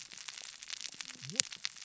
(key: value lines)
label: biophony, cascading saw
recorder: SoundTrap 600 or HydroMoth